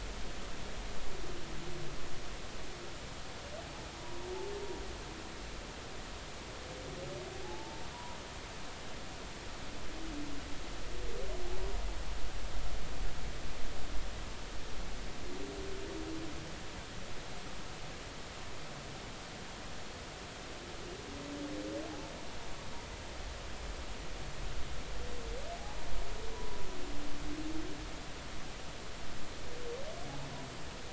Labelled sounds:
4.0	4.3	humpback whale, 0.90 to 1.1 kHz
7.4	8.2	humpback whale, 0.80 to 1.0 kHz
26.3	26.6	humpback whale, 0.96 to 1.0 kHz

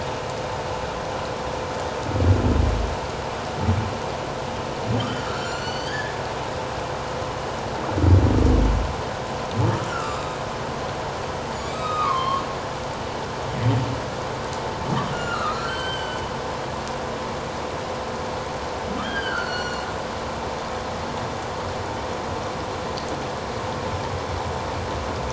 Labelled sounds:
5.0	6.2	humpback whale, 1.6 to 7.5 kHz
9.9	10.3	humpback whale, 1.1 to 1.5 kHz
11.7	12.4	humpback whale, 0.97 to 7.7 kHz
15.1	16.2	humpback whale, 1.2 to 7.8 kHz
19.0	19.9	humpback whale, 1.3 to 5.9 kHz

